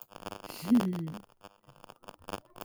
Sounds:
Laughter